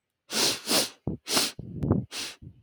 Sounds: Sniff